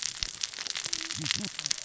{"label": "biophony, cascading saw", "recorder": "SoundTrap 600 or HydroMoth"}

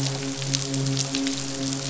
{"label": "biophony, midshipman", "recorder": "SoundTrap 500"}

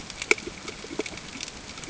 {"label": "ambient", "recorder": "HydroMoth"}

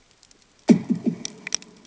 {"label": "anthrophony, bomb", "recorder": "HydroMoth"}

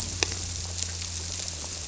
{"label": "biophony", "recorder": "SoundTrap 300"}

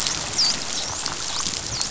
{"label": "biophony, dolphin", "recorder": "SoundTrap 500"}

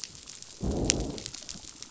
{"label": "biophony, growl", "recorder": "SoundTrap 500"}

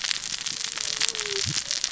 {"label": "biophony, cascading saw", "recorder": "SoundTrap 600 or HydroMoth"}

